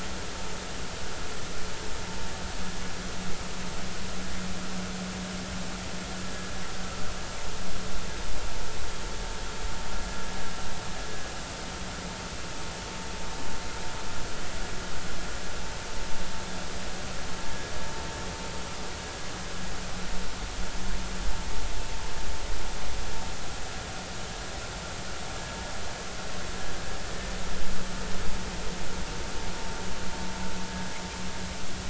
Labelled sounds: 6.2	6.5	vessel noise, 1.6 to 1.7 kHz

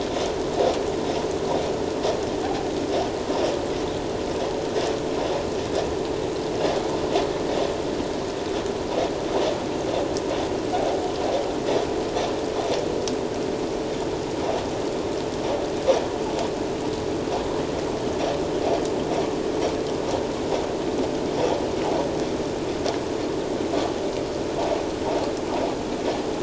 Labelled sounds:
2.4	2.7	vessel noise, 0.78 to 0.84 kHz

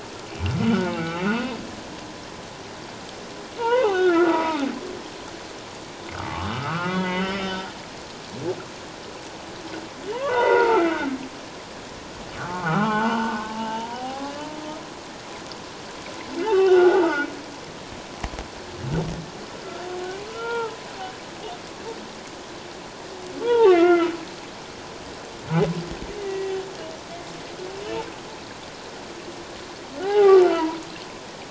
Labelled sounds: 0.7	1.6	humpback whale, 0.78 to 2.8 kHz
3.6	4.6	humpback whale, 0.78 to 3.1 kHz
6.2	7.7	humpback whale, 0.88 to 5.4 kHz
10.2	10.9	humpback whale, 0.84 to 3.8 kHz
12.4	14.4	humpback whale, 0.78 to 3.0 kHz
16.5	17.2	humpback whale, 1.1 to 2.8 kHz
20.3	20.8	humpback whale, 0.84 to 2.4 kHz
23.4	24.1	humpback whale, 0.78 to 3.4 kHz
26.2	26.6	humpback whale, 1.9 to 2.1 kHz
30.0	30.8	humpback whale, 0.78 to 3.1 kHz

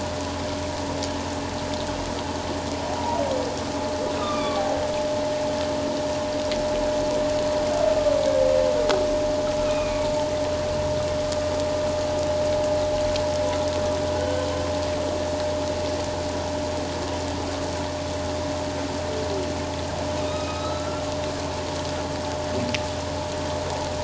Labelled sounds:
4.2	4.6	humpback whale, 1.1 to 3.8 kHz
9.6	10.0	humpback whale, 1.1 to 2.6 kHz
14.2	14.5	humpback whale, 1.4 to 1.6 kHz
20.2	21.0	humpback whale, 1.2 to 4.0 kHz

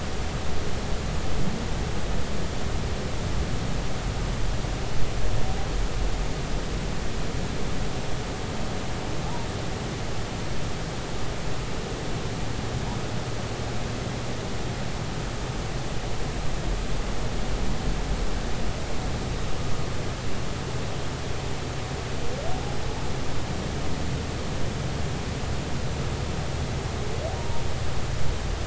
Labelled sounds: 27.4	27.6	humpback whale, 0.86 to 0.99 kHz

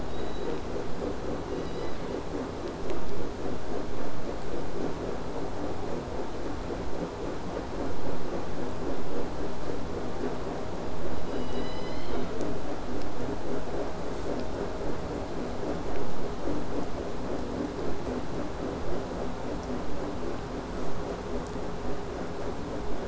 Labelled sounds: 11.2	12.3	killer whale, southern resident, J pod, call S01, 1.8 to 6.7 kHz
13.0	15.3	killer whale, southern resident, 6.9 to 8.0 kHz
20.8	21.0	killer whale, southern resident, buzz, 0.50 to 8.0 kHz

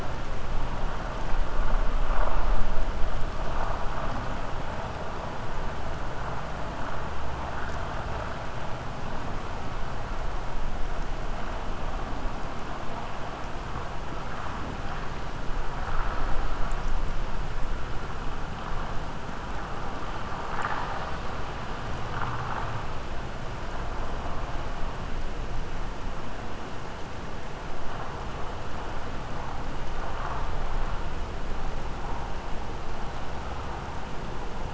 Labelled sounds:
20.4	21.3	vessel noise, 0.73 to 5.1 kHz

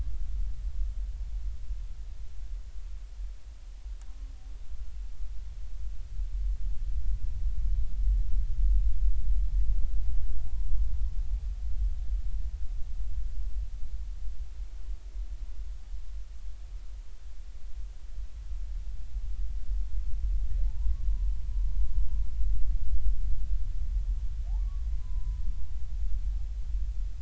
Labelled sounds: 20.6	21.1	humpback whale, 0.80 to 1.2 kHz
24.6	25.4	humpback whale, 0.96 to 1.2 kHz

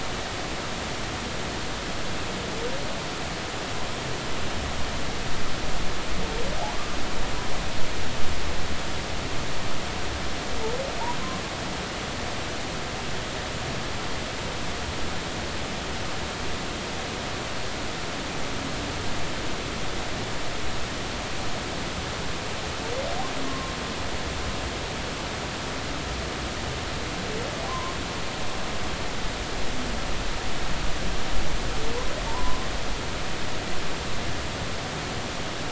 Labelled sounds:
23.5	23.7	humpback whale, 1.0 to 1.1 kHz
27.7	28.0	humpback whale, 0.93 to 1.1 kHz
32.2	32.7	humpback whale, 0.86 to 1.1 kHz

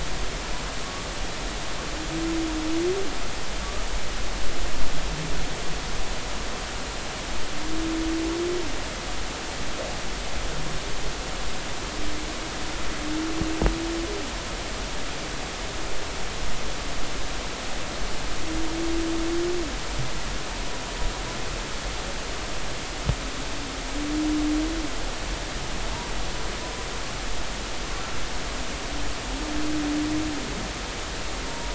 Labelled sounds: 31.5	31.7	humpback whale, 0.90 to 1.0 kHz

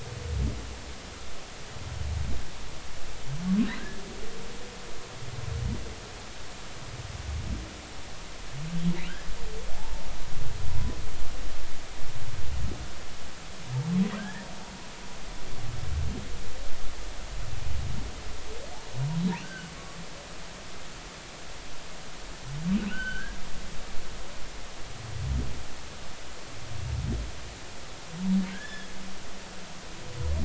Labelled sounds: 9.8	10.1	humpback whale, 0.80 to 0.96 kHz
14.2	14.5	humpback whale, 1.5 to 1.9 kHz
19.4	20.0	humpback whale, 1.1 to 1.6 kHz
22.9	23.4	humpback whale, 1.3 to 3.1 kHz
28.5	28.9	humpback whale, 1.5 to 3.6 kHz

